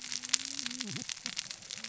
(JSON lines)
{"label": "biophony, cascading saw", "recorder": "SoundTrap 600 or HydroMoth"}